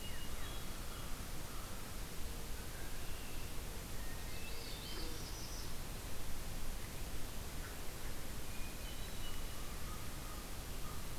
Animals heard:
Red-winged Blackbird (Agelaius phoeniceus), Northern Parula (Setophaga americana), Hermit Thrush (Catharus guttatus), American Crow (Corvus brachyrhynchos)

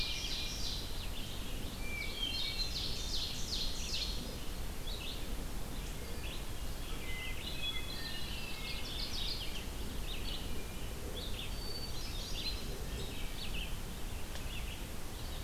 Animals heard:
Hermit Thrush (Catharus guttatus), Mourning Warbler (Geothlypis philadelphia), Ovenbird (Seiurus aurocapilla), Red-eyed Vireo (Vireo olivaceus)

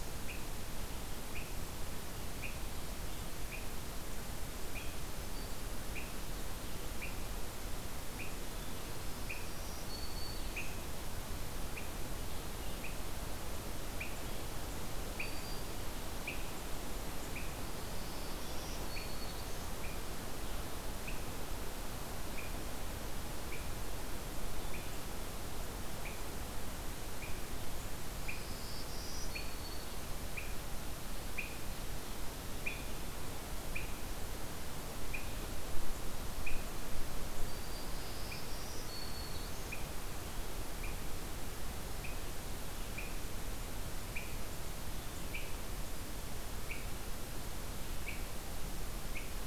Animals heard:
Black-throated Green Warbler (Setophaga virens), Swainson's Thrush (Catharus ustulatus)

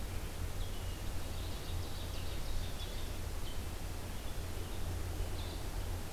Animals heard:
Ovenbird (Seiurus aurocapilla), Red-eyed Vireo (Vireo olivaceus)

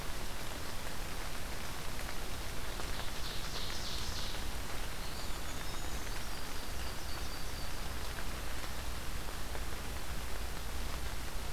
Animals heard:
Ovenbird (Seiurus aurocapilla), Brown Creeper (Certhia americana), Yellow-rumped Warbler (Setophaga coronata), Eastern Wood-Pewee (Contopus virens)

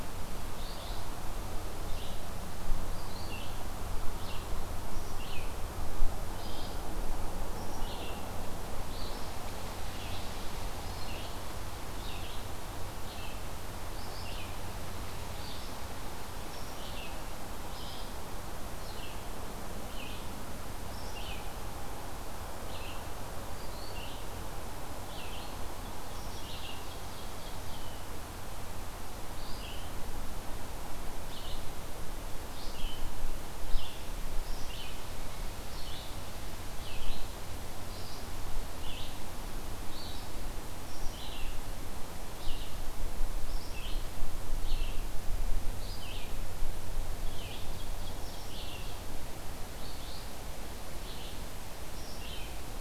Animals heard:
Red-eyed Vireo (Vireo olivaceus), Ovenbird (Seiurus aurocapilla)

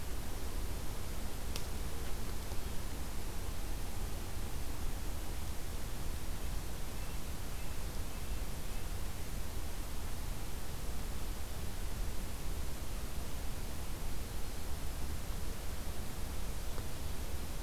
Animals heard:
Red-breasted Nuthatch (Sitta canadensis)

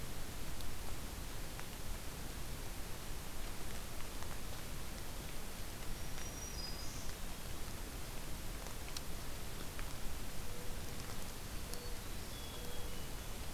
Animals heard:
Black-capped Chickadee (Poecile atricapillus), Black-throated Green Warbler (Setophaga virens), Mourning Dove (Zenaida macroura)

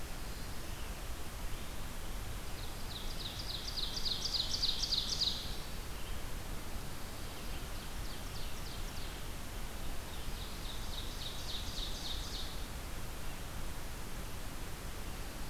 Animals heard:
Ovenbird (Seiurus aurocapilla), Red-eyed Vireo (Vireo olivaceus)

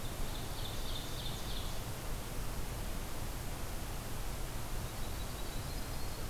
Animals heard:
Yellow-rumped Warbler (Setophaga coronata), Ovenbird (Seiurus aurocapilla)

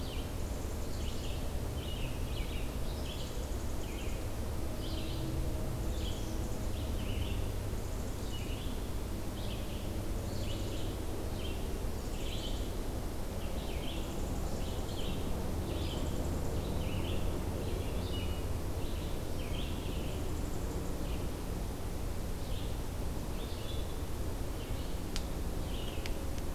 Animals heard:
Red-eyed Vireo (Vireo olivaceus), unidentified call

